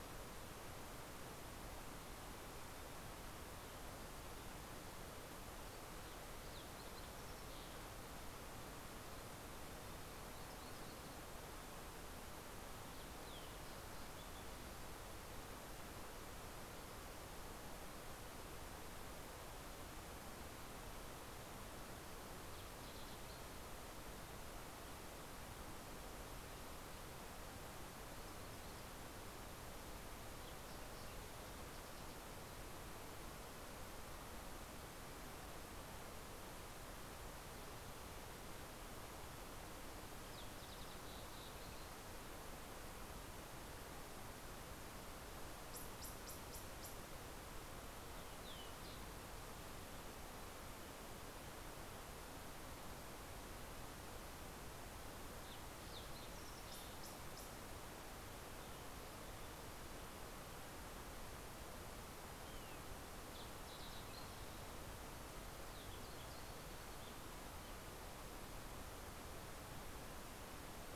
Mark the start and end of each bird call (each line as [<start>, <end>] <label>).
[5.30, 9.10] Fox Sparrow (Passerella iliaca)
[21.50, 24.10] Green-tailed Towhee (Pipilo chlorurus)
[39.40, 42.40] Fox Sparrow (Passerella iliaca)
[47.80, 49.90] Fox Sparrow (Passerella iliaca)
[54.60, 56.80] Fox Sparrow (Passerella iliaca)
[65.40, 68.20] Ruby-crowned Kinglet (Corthylio calendula)